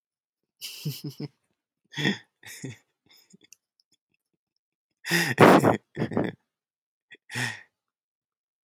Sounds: Laughter